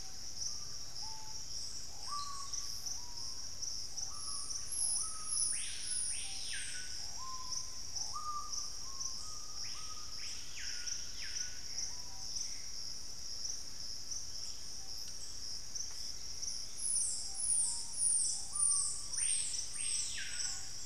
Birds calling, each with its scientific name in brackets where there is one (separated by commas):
Screaming Piha (Lipaugus vociferans), Gray Antbird (Cercomacra cinerascens)